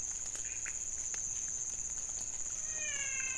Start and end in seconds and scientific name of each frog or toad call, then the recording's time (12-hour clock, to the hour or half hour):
0.0	3.3	Leptodactylus podicipinus
2.7	3.3	Physalaemus albonotatus
3am